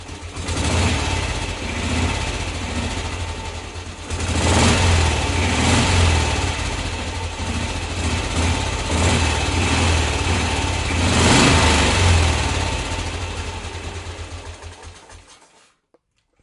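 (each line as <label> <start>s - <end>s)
A motorbike engine repeatedly accelerates while stationary. 0.0s - 15.7s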